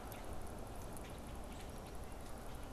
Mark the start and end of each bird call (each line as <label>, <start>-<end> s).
Red-winged Blackbird (Agelaius phoeniceus), 0.0-2.7 s